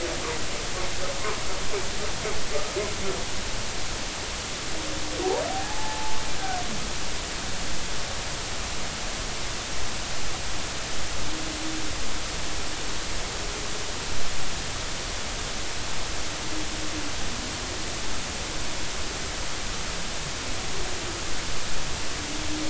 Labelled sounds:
5.5	6.2	humpback whale, 0.80 to 0.93 kHz

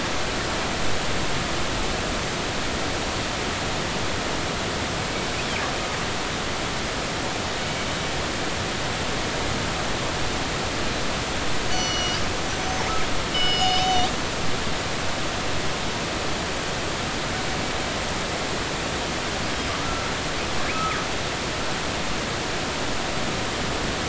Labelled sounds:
7.6	7.9	killer whale, northern resident, G clan, 2.2 to 2.3 kHz
11.7	12.8	killer whale, northern resident, G clan, 2.1 to 6.3 kHz
13.3	14.1	killer whale, northern resident, G clan, 2.2 to 6.0 kHz
19.8	20.1	killer whale, northern resident, G clan, 1.2 to 1.4 kHz
20.7	21.0	killer whale, northern resident, G clan, 1.2 to 1.4 kHz

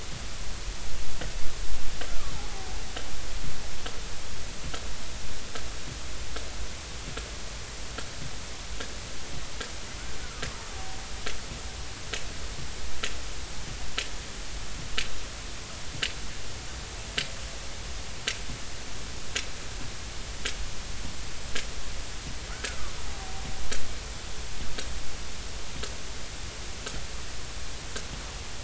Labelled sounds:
2.3	2.7	killer whale, Bigg's (transient), 0.80 to 0.93 kHz
10.2	10.4	killer whale, Bigg's (transient), 1.2 to 1.5 kHz
22.5	23.4	killer whale, Bigg's (transient), 0.80 to 1.7 kHz

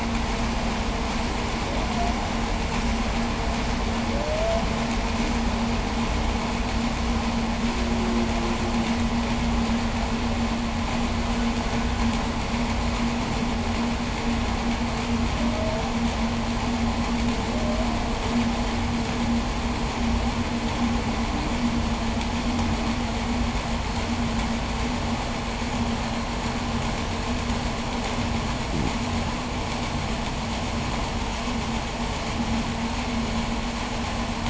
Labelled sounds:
1.5	2.2	humpback whale, 0.48 to 0.78 kHz
3.8	4.9	humpback whale, 0.51 to 0.73 kHz
7.4	9.0	humpback whale, 0.29 to 0.44 kHz
15.2	16.0	humpback whale, 0.54 to 0.71 kHz
17.3	18.2	humpback whale, 0.54 to 0.76 kHz
28.6	29.0	fish, groan, 0 to 0.48 kHz

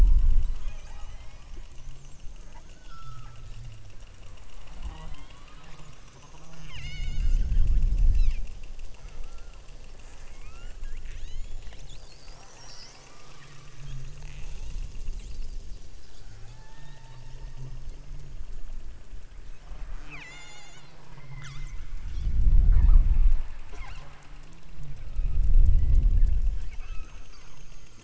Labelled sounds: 0.5	1.5	killer whale, southern Alaska resident, 0.43 to 6.9 kHz
2.5	3.6	killer whale, southern Alaska resident, 0.73 to 1.7 kHz
4.8	7.7	killer whale, southern Alaska resident, 0.27 to 8.0 kHz
8.1	8.5	killer whale, southern Alaska resident, 0.75 to 6.9 kHz
9.0	9.7	killer whale, southern Alaska resident, 0.37 to 1.5 kHz
10.3	11.7	killer whale, southern Alaska resident, 0.91 to 7.3 kHz
12.7	13.3	killer whale, southern Alaska resident, 0.50 to 3.4 kHz
14.3	15.2	killer whale, southern Alaska resident, 0.52 to 1.3 kHz
16.3	17.8	killer whale, southern Alaska resident, 0.52 to 5.7 kHz
19.6	21.9	killer whale, southern Alaska resident, 0.39 to 8.0 kHz
22.5	23.2	killer whale, southern Alaska resident, 0.48 to 4.9 kHz
23.6	24.3	killer whale, southern Alaska resident, 0.32 to 5.8 kHz
25.7	26.1	killer whale, southern Alaska resident, 1.7 to 4.7 kHz
26.7	27.3	killer whale, southern Alaska resident, 0.84 to 2.7 kHz

